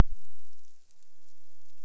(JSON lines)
{"label": "biophony", "recorder": "SoundTrap 300"}